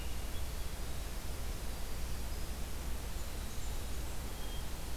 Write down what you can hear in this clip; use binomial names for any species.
Setophaga fusca